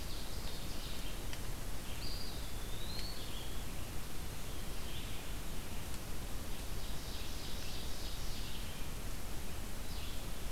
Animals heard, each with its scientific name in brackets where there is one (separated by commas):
Ovenbird (Seiurus aurocapilla), Eastern Wood-Pewee (Contopus virens), Red-eyed Vireo (Vireo olivaceus)